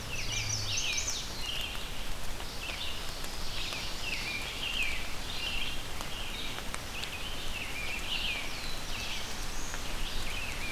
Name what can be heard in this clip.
American Robin, Chestnut-sided Warbler, Red-eyed Vireo, Ovenbird, Black-throated Blue Warbler